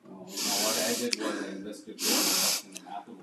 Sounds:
Sigh